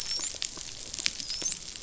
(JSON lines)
{"label": "biophony, dolphin", "recorder": "SoundTrap 500"}